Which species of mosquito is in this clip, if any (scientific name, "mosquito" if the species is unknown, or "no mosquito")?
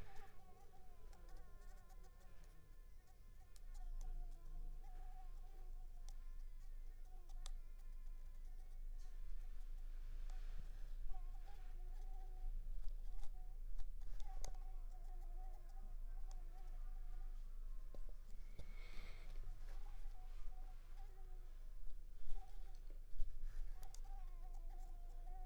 Anopheles squamosus